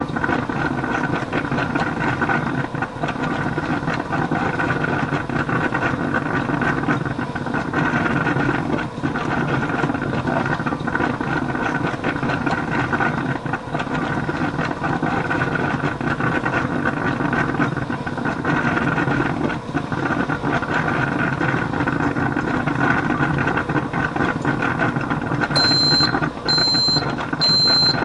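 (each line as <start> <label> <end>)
0.0 A clicking or turn signal-like sound repeats continuously in a crowded background. 28.0
0.0 Wind blowing through a car window while driving. 28.0
25.4 Three high-pitched beeps sound clearly and closely. 28.0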